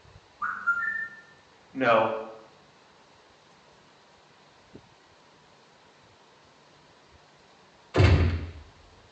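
At the start, a bird can be heard. Then, about 2 seconds in, someone says "No". Finally, about 8 seconds in, gunfire is heard. A faint, even noise lies in the background.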